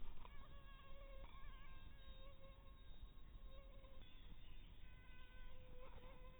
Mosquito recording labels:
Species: mosquito; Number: one; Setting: cup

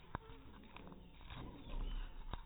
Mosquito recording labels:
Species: mosquito; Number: one; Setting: cup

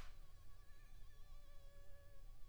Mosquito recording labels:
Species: Anopheles funestus s.l.; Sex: female; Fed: unfed; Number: one; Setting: cup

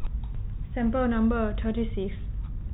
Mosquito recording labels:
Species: no mosquito; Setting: cup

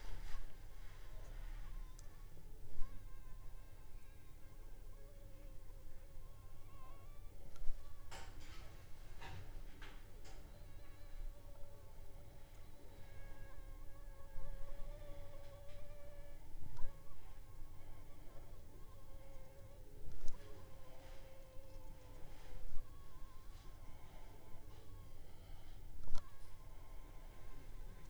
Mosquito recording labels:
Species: Anopheles funestus s.s.; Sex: female; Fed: unfed; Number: one; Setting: cup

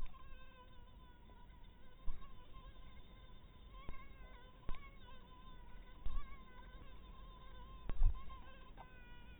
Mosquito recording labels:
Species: mosquito; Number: one; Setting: cup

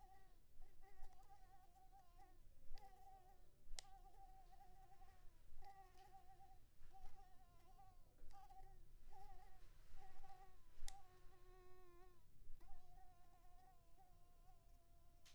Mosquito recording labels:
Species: Anopheles maculipalpis; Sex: female; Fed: unfed; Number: one; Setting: cup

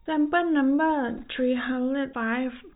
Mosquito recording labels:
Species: no mosquito; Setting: cup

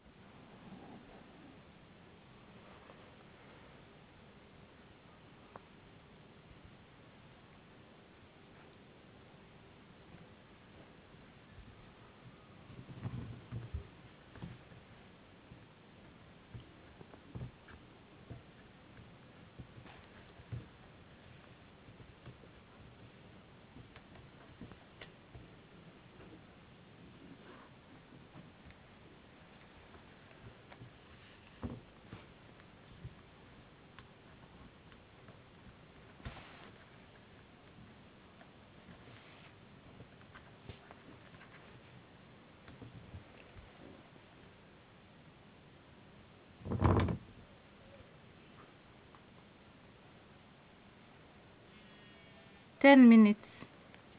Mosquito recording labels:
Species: no mosquito; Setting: insect culture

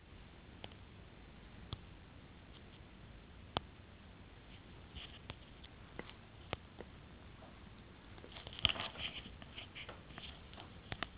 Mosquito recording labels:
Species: no mosquito; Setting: insect culture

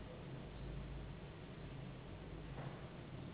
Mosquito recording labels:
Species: Anopheles gambiae s.s.; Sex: female; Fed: unfed; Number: one; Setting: insect culture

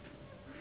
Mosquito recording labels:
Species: Anopheles gambiae s.s.; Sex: female; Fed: unfed; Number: one; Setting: insect culture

